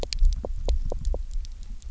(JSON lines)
{"label": "biophony, knock", "recorder": "SoundTrap 300"}